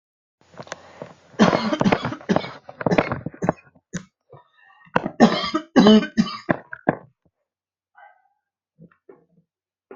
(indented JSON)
{
  "expert_labels": [
    {
      "quality": "ok",
      "cough_type": "dry",
      "dyspnea": false,
      "wheezing": false,
      "stridor": false,
      "choking": false,
      "congestion": false,
      "nothing": true,
      "diagnosis": "lower respiratory tract infection",
      "severity": "mild"
    }
  ],
  "age": 31,
  "gender": "male",
  "respiratory_condition": false,
  "fever_muscle_pain": false,
  "status": "symptomatic"
}